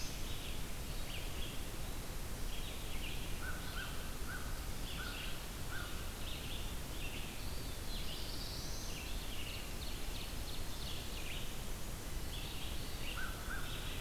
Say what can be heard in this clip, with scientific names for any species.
Vireo olivaceus, Corvus brachyrhynchos, Setophaga caerulescens, Seiurus aurocapilla, Mniotilta varia